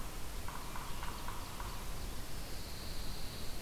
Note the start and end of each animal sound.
[0.00, 2.06] Yellow-bellied Sapsucker (Sphyrapicus varius)
[0.25, 2.48] Ovenbird (Seiurus aurocapilla)
[2.33, 3.62] Pine Warbler (Setophaga pinus)

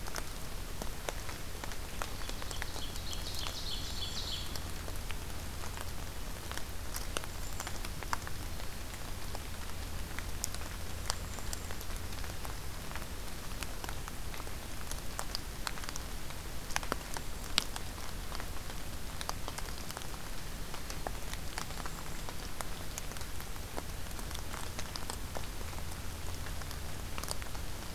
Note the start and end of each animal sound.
[2.10, 4.66] Ovenbird (Seiurus aurocapilla)
[3.25, 4.44] Golden-crowned Kinglet (Regulus satrapa)
[7.09, 7.72] Golden-crowned Kinglet (Regulus satrapa)
[11.00, 11.77] Golden-crowned Kinglet (Regulus satrapa)
[16.84, 17.58] Golden-crowned Kinglet (Regulus satrapa)
[21.58, 22.25] Golden-crowned Kinglet (Regulus satrapa)

